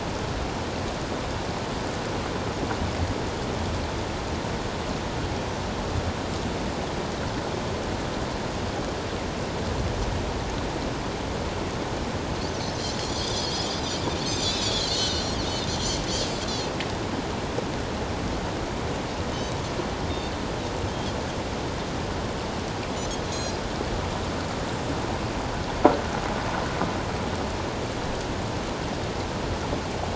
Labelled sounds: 13.1	13.7	Pacific white-sided dolphin, 3.1 to 5.0 kHz
14.3	15.4	Pacific white-sided dolphin, 2.8 to 7.3 kHz
16.1	16.5	Pacific white-sided dolphin, 4.8 to 5.2 kHz
23.2	23.6	Pacific white-sided dolphin, 4.0 to 4.2 kHz

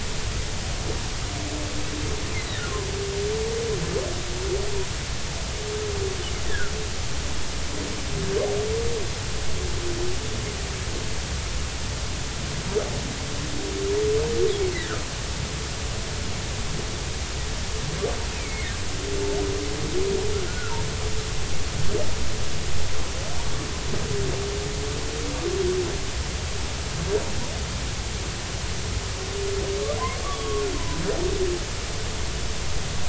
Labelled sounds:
2.3	2.6	humpback whale, 1.7 to 4.1 kHz
6.4	6.7	humpback whale, 1.3 to 2.0 kHz
18.3	18.7	humpback whale, 1.8 to 2.6 kHz
20.5	20.8	humpback whale, 1.3 to 1.5 kHz
30.2	30.6	humpback whale, 1.1 to 3.5 kHz

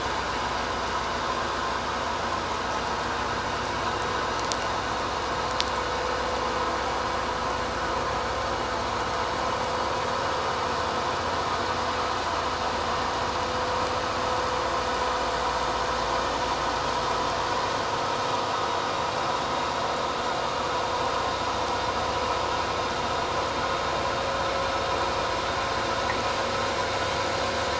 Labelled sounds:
1.0	1.3	vessel noise, 2.6 to 2.7 kHz

